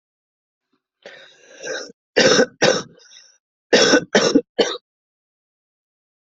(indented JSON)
{
  "expert_labels": [
    {
      "quality": "good",
      "cough_type": "dry",
      "dyspnea": true,
      "wheezing": false,
      "stridor": false,
      "choking": false,
      "congestion": false,
      "nothing": false,
      "diagnosis": "COVID-19",
      "severity": "mild"
    }
  ],
  "age": 42,
  "gender": "female",
  "respiratory_condition": true,
  "fever_muscle_pain": false,
  "status": "symptomatic"
}